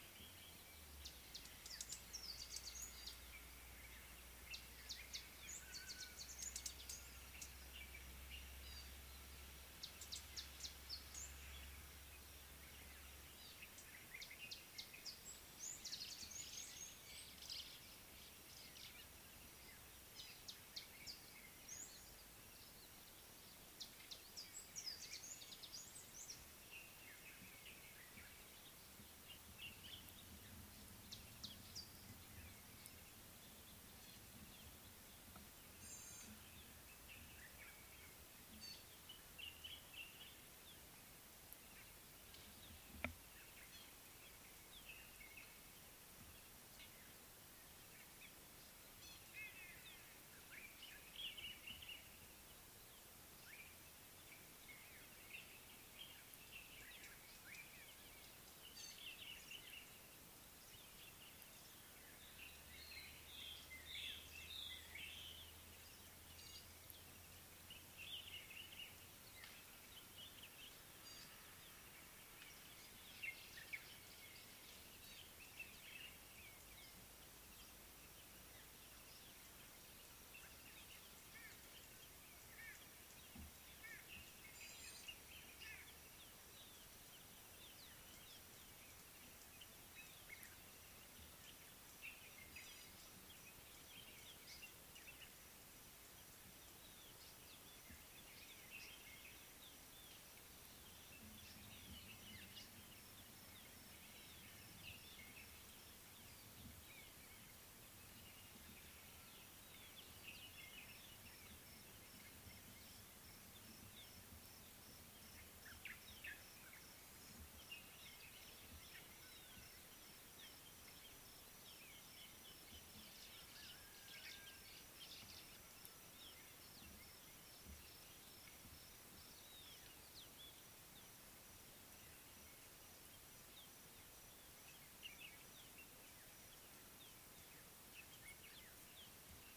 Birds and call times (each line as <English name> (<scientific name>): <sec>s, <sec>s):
Variable Sunbird (Cinnyris venustus): 2.4s, 6.6s
Gray-backed Camaroptera (Camaroptera brevicaudata): 36.2s, 49.1s, 66.6s, 84.9s
Common Bulbul (Pycnonotus barbatus): 39.7s, 51.4s, 68.3s
White-bellied Go-away-bird (Corythaixoides leucogaster): 49.7s
White-browed Robin-Chat (Cossypha heuglini): 64.1s